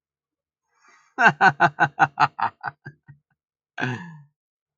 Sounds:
Laughter